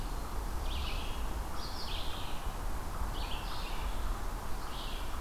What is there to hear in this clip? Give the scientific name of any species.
Vireo olivaceus